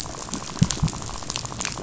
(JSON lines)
{"label": "biophony, rattle", "recorder": "SoundTrap 500"}